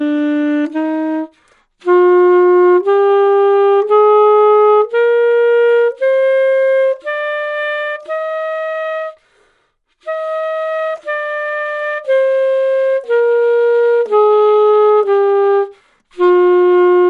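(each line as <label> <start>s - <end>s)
A saxophone is played with a gradual increase in pitch. 0.0s - 9.2s
A person breathing rapidly while playing an instrument. 1.3s - 1.8s
A person breathing rapidly while playing an instrument. 9.2s - 10.0s
A saxophone is played with a gradual decrease in pitch. 10.0s - 15.8s
A person breathing rapidly while playing an instrument. 15.8s - 16.1s
A saxophone is being played. 16.1s - 17.1s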